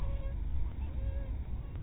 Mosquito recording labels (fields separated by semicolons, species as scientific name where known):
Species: mosquito; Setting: cup